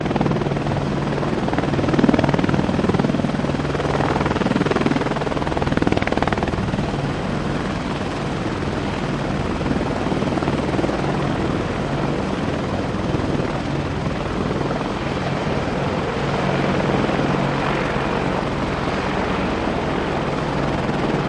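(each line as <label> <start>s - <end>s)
Two helicopters moving toward the runway. 0.0s - 21.3s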